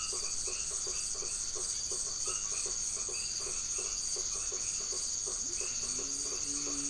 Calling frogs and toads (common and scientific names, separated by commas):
white-edged tree frog (Boana albomarginata), blacksmith tree frog (Boana faber), Leptodactylus latrans